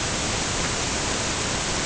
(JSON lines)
{"label": "ambient", "recorder": "HydroMoth"}